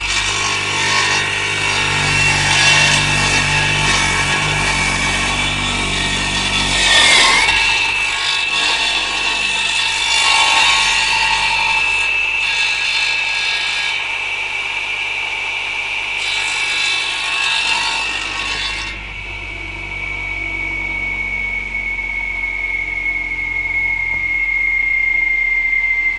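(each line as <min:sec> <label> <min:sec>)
0:00.0 Metallic sounds of tools working in a workshop. 0:26.2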